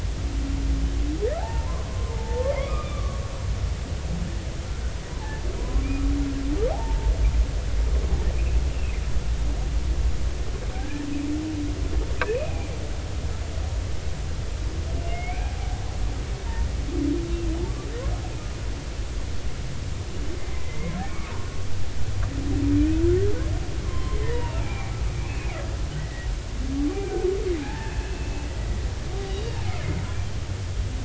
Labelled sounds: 1.4	3.2	humpback whale, 0.80 to 1.9 kHz
5.6	6.1	humpback whale, 0.93 to 2.6 kHz
6.7	7.1	humpback whale, 0.80 to 0.96 kHz
8.7	9.0	humpback whale, 2.3 to 2.8 kHz
10.7	11.1	humpback whale, 1.4 to 1.9 kHz
12.3	12.7	humpback whale, 2.3 to 2.6 kHz
15.1	15.5	humpback whale, 2.1 to 2.5 kHz
20.6	21.3	humpback whale, 2.0 to 2.3 kHz
23.8	25.0	humpback whale, 0.80 to 3.2 kHz
25.3	26.3	humpback whale, 1.9 to 2.8 kHz
27.6	28.5	humpback whale, 0.80 to 2.7 kHz
29.3	30.0	humpback whale, 2.0 to 3.0 kHz

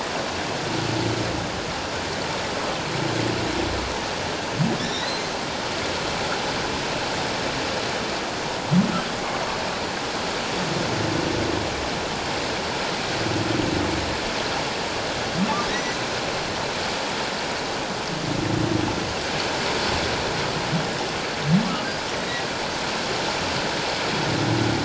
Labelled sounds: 4.8	5.3	humpback whale, 3.3 to 5.6 kHz
15.7	16.0	humpback whale, 1.7 to 2.1 kHz

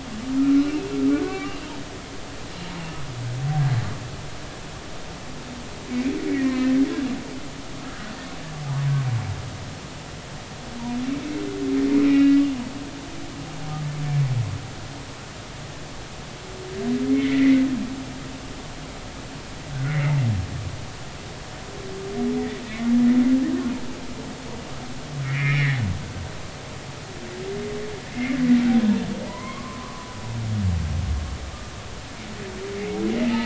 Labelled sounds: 0.6	1.5	humpback whale, 1.1 to 2.9 kHz
6.3	6.8	humpback whale, 0.99 to 2.5 kHz
7.8	8.1	humpback whale, 1.2 to 1.5 kHz
12.0	12.4	humpback whale, 1.9 to 2.6 kHz
17.1	17.7	humpback whale, 1.9 to 2.3 kHz
19.7	20.2	humpback whale, 1.4 to 2.3 kHz
22.3	22.6	humpback whale, 1.8 to 2.0 kHz
25.2	25.8	humpback whale, 1.6 to 2.6 kHz
28.1	28.4	humpback whale, 2.0 to 2.3 kHz
29.3	30.2	humpback whale, 0.93 to 2.2 kHz

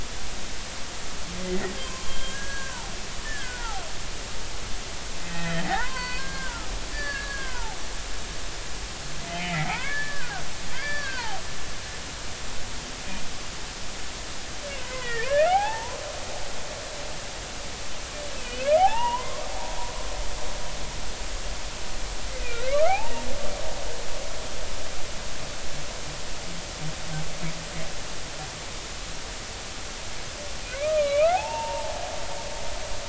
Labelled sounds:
1.4	2.8	humpback whale, 0.96 to 6.1 kHz
3.2	3.8	humpback whale, 0.80 to 1.8 kHz
5.2	7.8	humpback whale, 0.80 to 4.7 kHz
9.3	10.3	humpback whale, 0.80 to 2.7 kHz
10.7	11.4	humpback whale, 0.80 to 4.7 kHz
14.8	16.0	humpback whale, 0.80 to 3.4 kHz
18.3	19.5	humpback whale, 0.80 to 3.1 kHz
22.6	23.3	humpback whale, 0.80 to 2.4 kHz
30.8	32.0	humpback whale, 0.80 to 2.8 kHz

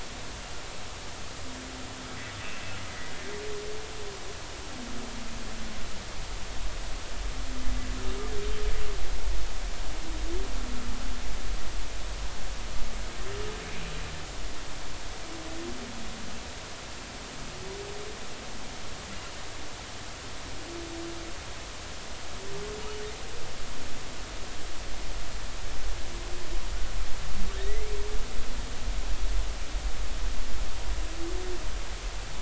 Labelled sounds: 2.4	2.8	humpback whale, 2.5 to 2.8 kHz
27.6	27.9	humpback whale, 1.7 to 2.2 kHz

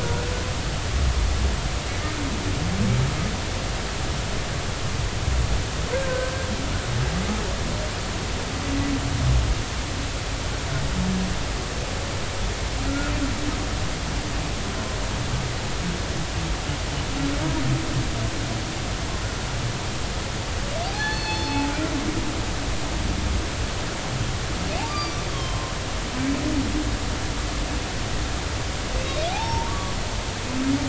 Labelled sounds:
0.0	0.3	humpback whale, 1.4 to 1.5 kHz
5.9	6.3	humpback whale, 1.5 to 1.7 kHz
12.8	13.1	humpback whale, 1.3 to 1.5 kHz
20.9	21.7	humpback whale, 0.80 to 4.4 kHz
24.9	25.7	humpback whale, 0.99 to 5.0 kHz
29.3	29.9	humpback whale, 0.80 to 1.2 kHz

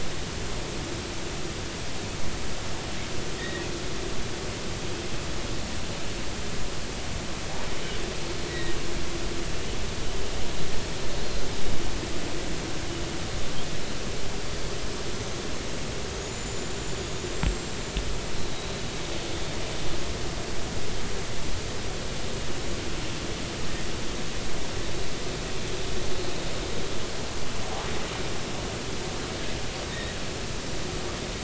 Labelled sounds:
3.4	3.7	killer whale, offshore, 1.8 to 2.0 kHz
8.5	8.8	killer whale, offshore, 1.8 to 2.0 kHz
11.2	11.4	killer whale, offshore, 4.1 to 4.3 kHz
16.2	17.8	killer whale, offshore, 6.6 to 7.6 kHz
18.4	18.8	killer whale, offshore, 3.8 to 4.1 kHz
29.9	30.2	killer whale, offshore, 1.8 to 2.0 kHz

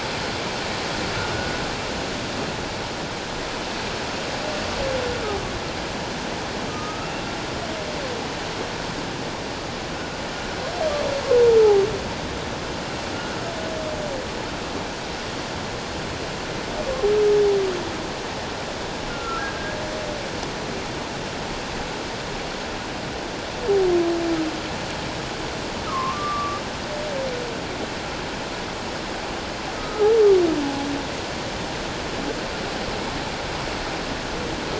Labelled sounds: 1.3	1.6	humpback whale, 1.4 to 1.5 kHz
6.7	7.2	humpback whale, 1.2 to 2.8 kHz
19.1	19.5	humpback whale, 1.3 to 1.5 kHz
25.9	26.6	humpback whale, 0.97 to 1.3 kHz
29.8	30.1	humpback whale, 1.2 to 1.3 kHz

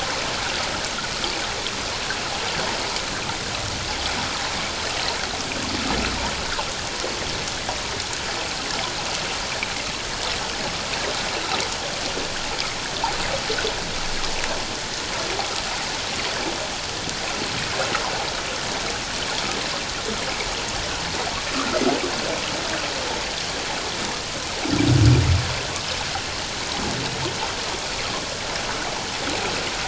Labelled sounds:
21.5	21.8	water noise, 1.1 to 1.5 kHz

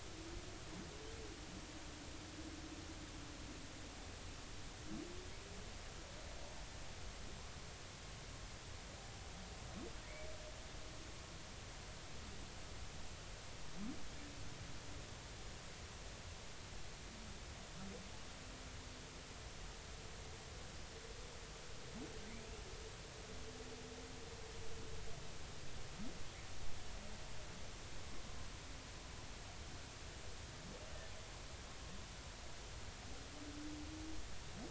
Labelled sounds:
22.3	22.5	humpback whale, 1.9 to 2.5 kHz

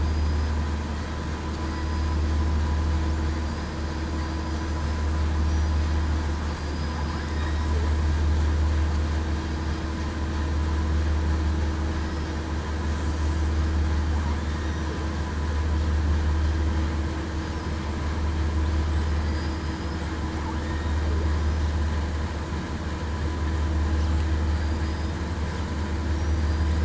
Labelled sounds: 0.0	0.5	killer whale, southern resident, 4.8 to 5.1 kHz
1.6	2.2	killer whale, southern resident, 4.8 to 5.0 kHz
7.3	7.7	killer whale, southern resident, 3.6 to 3.8 kHz
11.9	12.3	killer whale, southern resident, 5.1 to 5.2 kHz

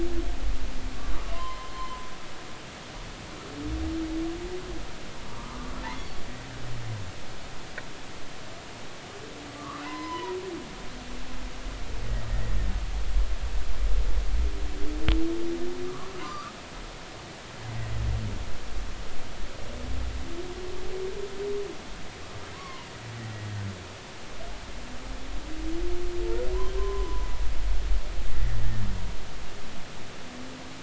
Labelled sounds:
1.2	2.1	humpback whale, 0.93 to 3.2 kHz
5.2	6.1	humpback whale, 0.90 to 2.1 kHz
9.6	10.4	humpback whale, 0.90 to 2.1 kHz
15.8	16.6	humpback whale, 0.93 to 1.5 kHz
17.7	17.9	humpback whale, 1.9 to 2.1 kHz
22.5	22.9	humpback whale, 0.93 to 1.2 kHz
26.8	27.3	humpback whale, 0.96 to 1.1 kHz
28.3	28.6	humpback whale, 1.7 to 2.0 kHz

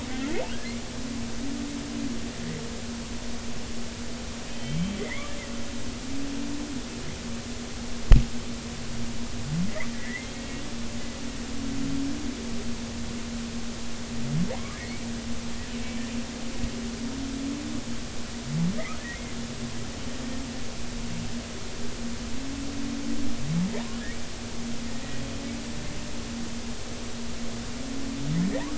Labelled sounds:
4.5	5.3	humpback whale, 1.8 to 3.2 kHz
9.7	10.3	humpback whale, 1.8 to 2.3 kHz
14.5	15.1	humpback whale, 0.90 to 2.4 kHz

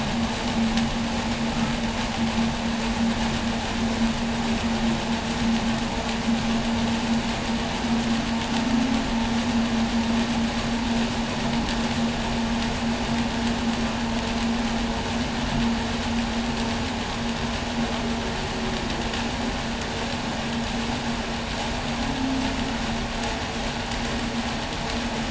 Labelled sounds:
8.3	9.2	humpback whale, 0.20 to 0.36 kHz
17.4	19.7	humpback whale, 0.19 to 0.68 kHz
21.7	22.9	humpback whale, 0.22 to 0.36 kHz

